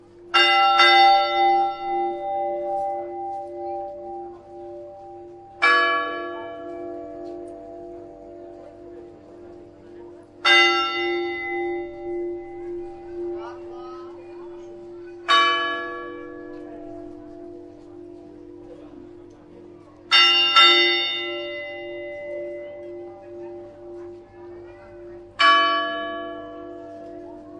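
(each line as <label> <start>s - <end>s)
A bell rings frequently. 0.0s - 27.6s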